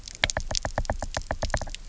{"label": "biophony, knock", "recorder": "SoundTrap 300"}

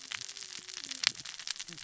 {"label": "biophony, cascading saw", "recorder": "SoundTrap 600 or HydroMoth"}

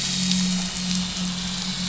{"label": "anthrophony, boat engine", "recorder": "SoundTrap 500"}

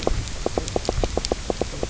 {"label": "biophony, knock croak", "recorder": "SoundTrap 300"}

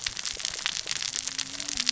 {"label": "biophony, cascading saw", "recorder": "SoundTrap 600 or HydroMoth"}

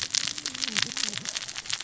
{"label": "biophony, cascading saw", "recorder": "SoundTrap 600 or HydroMoth"}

